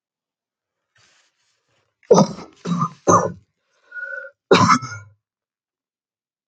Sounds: Cough